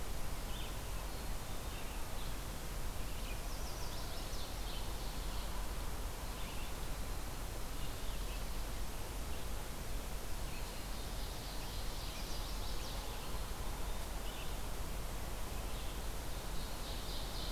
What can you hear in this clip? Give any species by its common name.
Red-eyed Vireo, Black-capped Chickadee, Chestnut-sided Warbler, Ovenbird